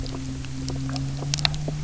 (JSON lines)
{"label": "anthrophony, boat engine", "recorder": "SoundTrap 300"}